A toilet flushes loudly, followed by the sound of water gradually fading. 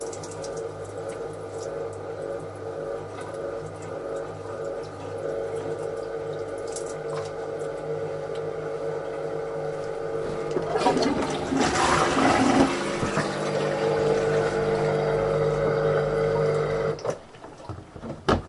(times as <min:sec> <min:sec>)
0:10.8 0:14.5